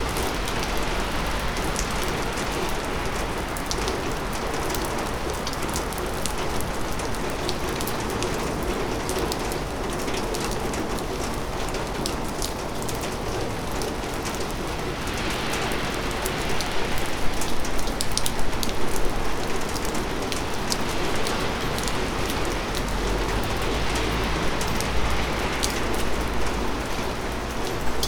What type of precipitation is this?
rain